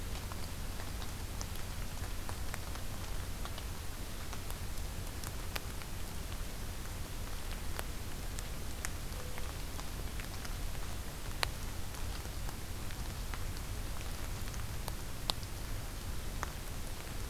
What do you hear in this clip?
Mourning Dove